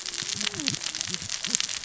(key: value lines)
label: biophony, cascading saw
recorder: SoundTrap 600 or HydroMoth